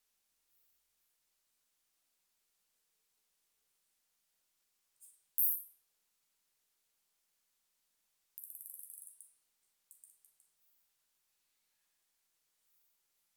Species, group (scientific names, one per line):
Isophya modesta
Orthoptera